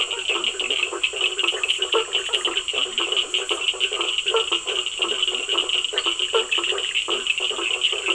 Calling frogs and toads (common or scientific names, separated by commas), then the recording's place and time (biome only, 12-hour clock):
blacksmith tree frog, Cochran's lime tree frog, Leptodactylus latrans, Bischoff's tree frog, lesser tree frog
Atlantic Forest, 9:15pm